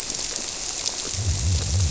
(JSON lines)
{"label": "biophony", "recorder": "SoundTrap 300"}